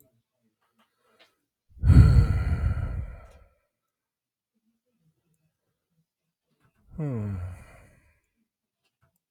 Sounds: Sigh